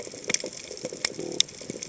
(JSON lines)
{"label": "biophony", "recorder": "HydroMoth"}